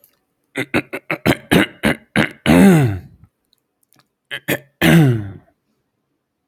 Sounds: Throat clearing